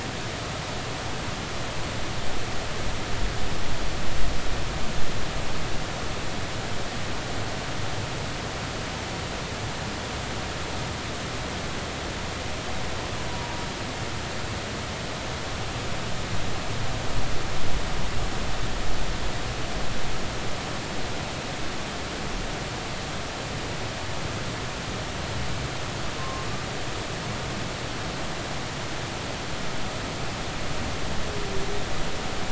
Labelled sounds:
13.3	13.6	humpback whale, 0.83 to 0.99 kHz
26.2	26.5	humpback whale, 1.0 to 1.1 kHz

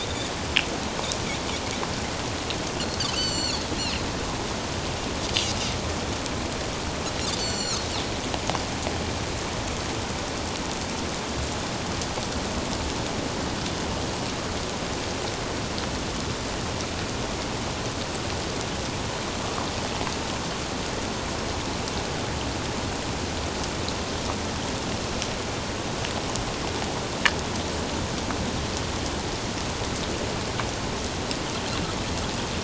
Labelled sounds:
3.2	3.6	Pacific white-sided dolphin, 2.6 to 7.6 kHz
7.4	7.9	Pacific white-sided dolphin, 2.8 to 7.6 kHz

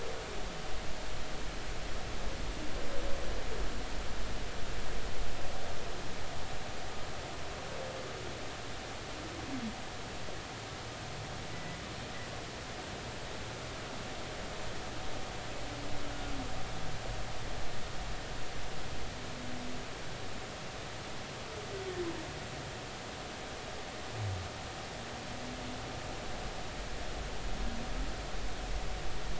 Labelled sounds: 11.5	11.8	humpback whale, 1.9 to 2.0 kHz

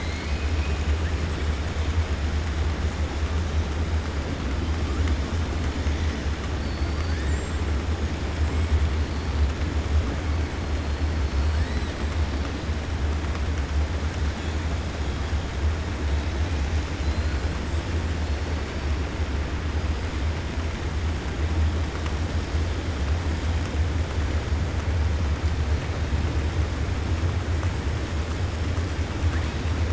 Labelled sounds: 6.5	7.2	killer whale, 3.5 to 5.6 kHz

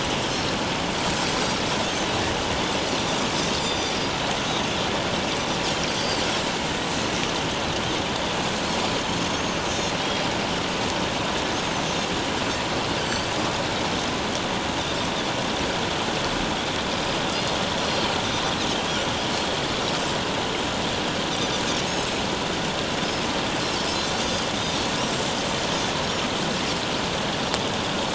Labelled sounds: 3.6	4.0	Pacific white-sided dolphin, 3.4 to 5.1 kHz
4.4	4.7	Pacific white-sided dolphin, 6.0 to 6.3 kHz
5.9	6.2	Pacific white-sided dolphin, 4.4 to 4.9 kHz
9.3	9.9	Pacific white-sided dolphin, 5.9 to 6.6 kHz
11.5	11.8	Pacific white-sided dolphin, 5.8 to 6.7 kHz
13.0	13.3	Pacific white-sided dolphin, 4.4 to 4.9 kHz
17.8	18.1	Pacific white-sided dolphin, 4.1 to 5.8 kHz
24.2	24.8	Pacific white-sided dolphin, 4.8 to 6.3 kHz

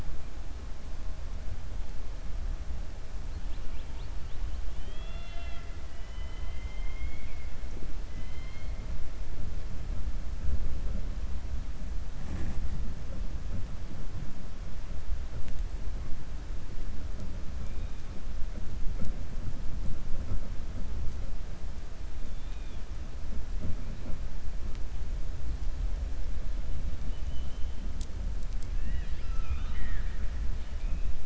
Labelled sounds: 4.7	7.5	killer whale, 0.68 to 4.8 kHz
28.7	30.3	killer whale, 1.2 to 5.1 kHz

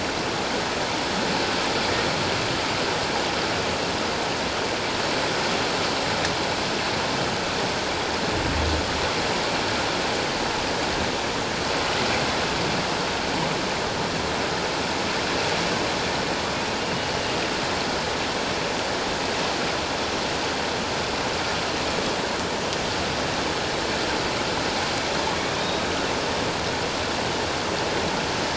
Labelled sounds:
25.6	25.9	humpback whale, 3.6 to 3.9 kHz

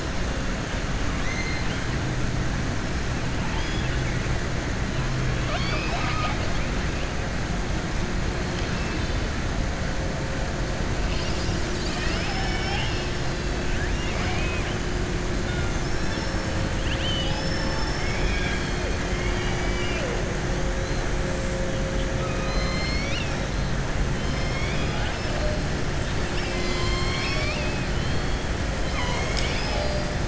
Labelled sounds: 3.4	4.0	killer whale, southern resident, 1.9 to 5.1 kHz
5.3	6.6	killer whale, southern resident, 0.64 to 5.4 kHz
13.7	14.7	killer whale, southern resident, 0.72 to 3.6 kHz
15.6	16.4	killer whale, southern resident, 2.6 to 6.4 kHz
22.1	23.5	killer whale, southern resident, 1.1 to 6.1 kHz
24.2	25.2	killer whale, southern resident, 0.85 to 5.6 kHz

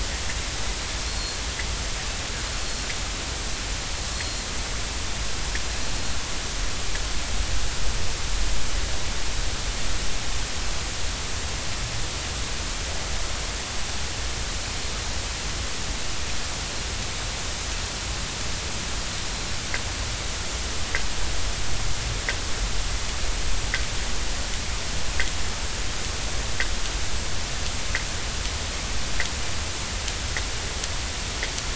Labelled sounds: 1.1	1.4	Pacific white-sided dolphin, 4.2 to 4.4 kHz
4.1	4.4	Pacific white-sided dolphin, 4.1 to 4.3 kHz

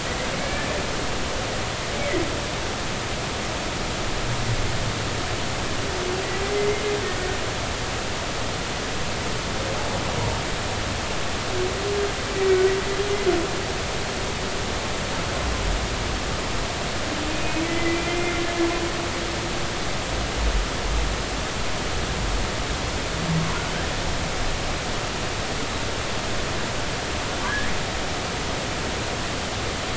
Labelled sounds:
0.4	0.7	humpback whale, 1.7 to 1.8 kHz
6.5	6.8	humpback whale, 2.0 to 2.1 kHz
17.3	18.4	humpback whale, 2.0 to 2.6 kHz
27.4	27.7	humpback whale, 1.5 to 1.8 kHz

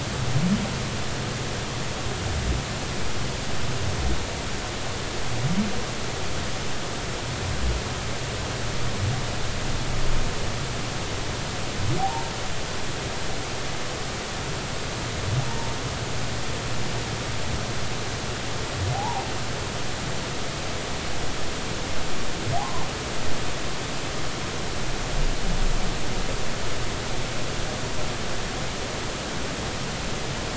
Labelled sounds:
13.0	13.3	humpback whale, 0.80 to 0.99 kHz
18.9	19.3	humpback whale, 0.80 to 1.0 kHz
22.6	22.9	humpback whale, 0.80 to 1.1 kHz

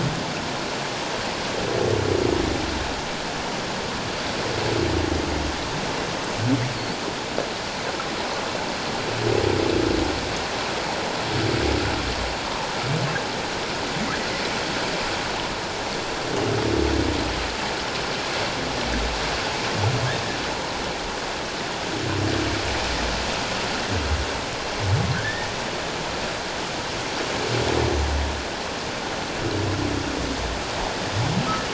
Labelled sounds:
25.1	25.5	humpback whale, 1.4 to 1.9 kHz

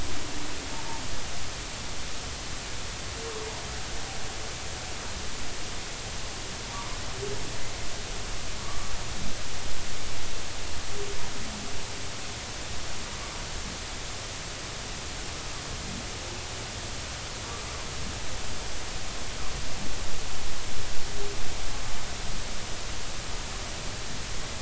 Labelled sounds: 6.7	7.0	humpback whale, 0.90 to 1.1 kHz
8.6	8.9	humpback whale, 1.1 to 1.2 kHz

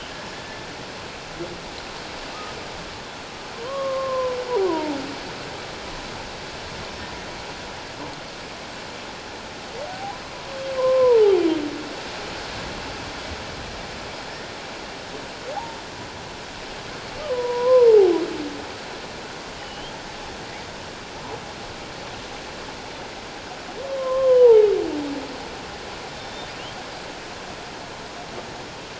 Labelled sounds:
3.6	5.0	humpback whale, 0.78 to 1.2 kHz
9.9	11.3	humpback whale, 0.78 to 1.1 kHz
17.3	18.1	humpback whale, 0.78 to 1.1 kHz
19.6	19.9	humpback whale, 2.8 to 3.3 kHz
24.0	24.7	humpback whale, 0.78 to 3.2 kHz
26.1	26.5	humpback whale, 3.5 to 5.5 kHz

